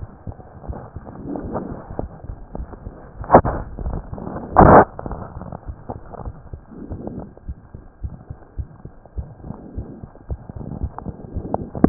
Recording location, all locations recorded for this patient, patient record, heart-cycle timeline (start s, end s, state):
pulmonary valve (PV)
aortic valve (AV)+pulmonary valve (PV)+tricuspid valve (TV)+mitral valve (MV)
#Age: Child
#Sex: Female
#Height: 112.0 cm
#Weight: 22.3 kg
#Pregnancy status: False
#Murmur: Present
#Murmur locations: pulmonary valve (PV)+tricuspid valve (TV)
#Most audible location: pulmonary valve (PV)
#Systolic murmur timing: Holosystolic
#Systolic murmur shape: Plateau
#Systolic murmur grading: I/VI
#Systolic murmur pitch: Low
#Systolic murmur quality: Blowing
#Diastolic murmur timing: nan
#Diastolic murmur shape: nan
#Diastolic murmur grading: nan
#Diastolic murmur pitch: nan
#Diastolic murmur quality: nan
#Outcome: Abnormal
#Campaign: 2015 screening campaign
0.00	7.47	unannotated
7.47	7.58	S1
7.58	7.72	systole
7.72	7.82	S2
7.82	8.01	diastole
8.01	8.14	S1
8.14	8.28	systole
8.28	8.38	S2
8.38	8.56	diastole
8.56	8.68	S1
8.68	8.83	systole
8.83	8.90	S2
8.90	9.14	diastole
9.14	9.28	S1
9.28	9.42	systole
9.42	9.54	S2
9.54	9.75	diastole
9.75	9.85	S1
9.85	10.01	systole
10.01	10.08	S2
10.08	10.27	diastole
10.27	10.38	S1
10.38	11.89	unannotated